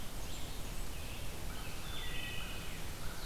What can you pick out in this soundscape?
Blue-headed Vireo, Blackburnian Warbler, American Robin, American Crow, Wood Thrush